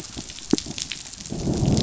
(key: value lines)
label: biophony, growl
recorder: SoundTrap 500